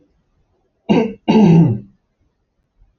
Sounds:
Throat clearing